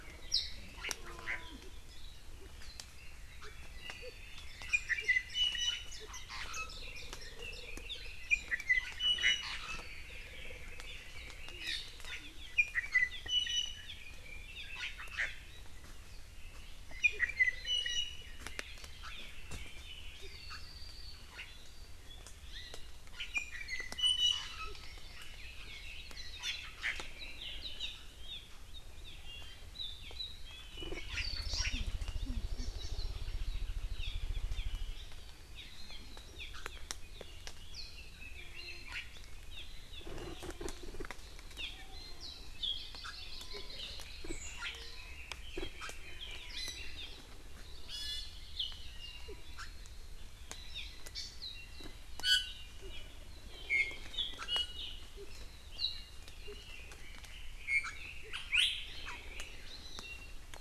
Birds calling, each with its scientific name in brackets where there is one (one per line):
Hawaii Amakihi (Chlorodrepanis virens)
Red-billed Leiothrix (Leiothrix lutea)
Iiwi (Drepanis coccinea)